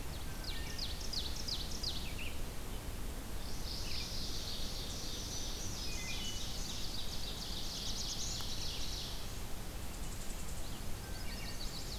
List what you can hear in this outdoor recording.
Ovenbird, Red-eyed Vireo, Wood Thrush, Mourning Warbler, Black-throated Green Warbler, Black-throated Blue Warbler, unknown mammal, Chestnut-sided Warbler